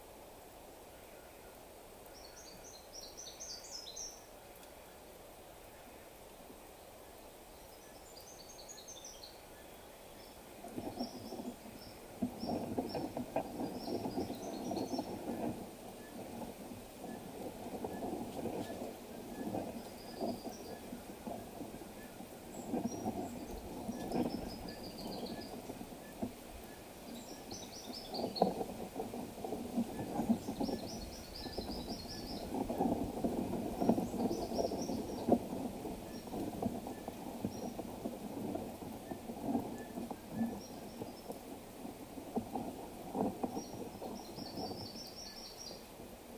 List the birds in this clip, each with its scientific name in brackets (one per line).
Brown Woodland-Warbler (Phylloscopus umbrovirens)
Cinnamon-chested Bee-eater (Merops oreobates)